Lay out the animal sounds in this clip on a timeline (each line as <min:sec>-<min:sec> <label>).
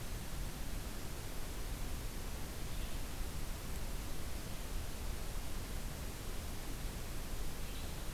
0:02.4-0:03.3 Red-eyed Vireo (Vireo olivaceus)
0:07.3-0:08.1 Red-eyed Vireo (Vireo olivaceus)